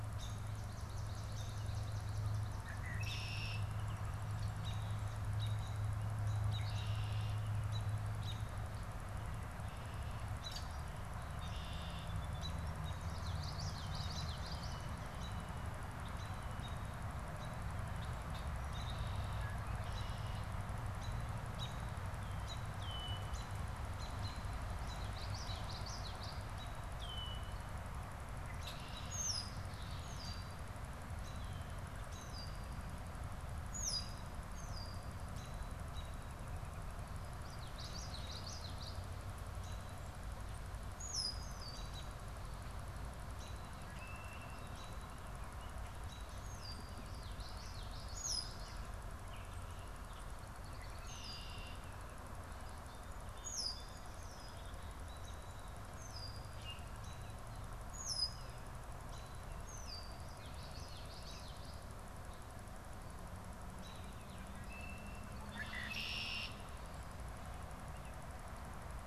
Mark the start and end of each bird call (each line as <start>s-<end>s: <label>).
0.0s-3.1s: Swamp Sparrow (Melospiza georgiana)
2.6s-4.0s: Red-winged Blackbird (Agelaius phoeniceus)
4.3s-8.7s: American Robin (Turdus migratorius)
6.3s-7.6s: Red-winged Blackbird (Agelaius phoeniceus)
10.3s-10.8s: Red-winged Blackbird (Agelaius phoeniceus)
11.1s-12.3s: Red-winged Blackbird (Agelaius phoeniceus)
12.8s-15.0s: Common Yellowthroat (Geothlypis trichas)
15.1s-18.5s: American Robin (Turdus migratorius)
18.5s-19.6s: Red-winged Blackbird (Agelaius phoeniceus)
20.9s-22.8s: American Robin (Turdus migratorius)
22.7s-23.6s: Red-winged Blackbird (Agelaius phoeniceus)
23.2s-26.8s: American Robin (Turdus migratorius)
24.7s-26.7s: Common Yellowthroat (Geothlypis trichas)
26.8s-27.7s: Red-winged Blackbird (Agelaius phoeniceus)
28.3s-35.6s: Red-winged Blackbird (Agelaius phoeniceus)
37.1s-39.2s: Common Yellowthroat (Geothlypis trichas)
40.8s-42.3s: Red-winged Blackbird (Agelaius phoeniceus)
43.5s-45.0s: Red-winged Blackbird (Agelaius phoeniceus)
46.1s-47.0s: Red-winged Blackbird (Agelaius phoeniceus)
46.6s-49.0s: Common Yellowthroat (Geothlypis trichas)
48.1s-48.8s: Red-winged Blackbird (Agelaius phoeniceus)
50.6s-51.9s: Red-winged Blackbird (Agelaius phoeniceus)
52.9s-55.9s: Song Sparrow (Melospiza melodia)
53.2s-60.3s: Red-winged Blackbird (Agelaius phoeniceus)
59.9s-61.9s: Common Yellowthroat (Geothlypis trichas)
64.4s-66.8s: Red-winged Blackbird (Agelaius phoeniceus)